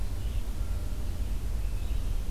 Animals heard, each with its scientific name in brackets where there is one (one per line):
Red-eyed Vireo (Vireo olivaceus)